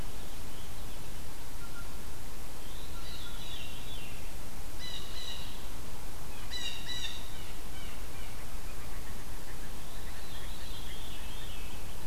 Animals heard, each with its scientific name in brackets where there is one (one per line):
Veery (Catharus fuscescens)
Blue Jay (Cyanocitta cristata)